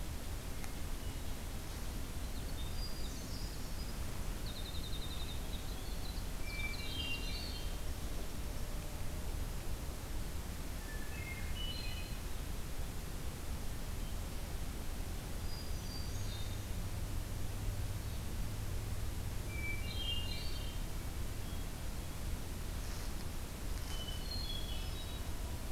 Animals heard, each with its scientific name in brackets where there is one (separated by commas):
Hermit Thrush (Catharus guttatus), Winter Wren (Troglodytes hiemalis)